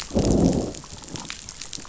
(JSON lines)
{"label": "biophony, growl", "recorder": "SoundTrap 500"}